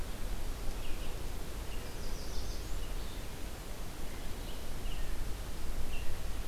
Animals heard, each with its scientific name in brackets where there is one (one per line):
American Redstart (Setophaga ruticilla)
Red-eyed Vireo (Vireo olivaceus)